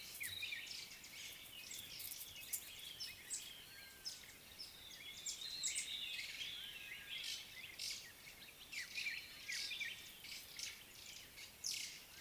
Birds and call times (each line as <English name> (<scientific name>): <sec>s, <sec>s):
White-browed Sparrow-Weaver (Plocepasser mahali): 5.4s
White-browed Robin-Chat (Cossypha heuglini): 5.9s, 9.6s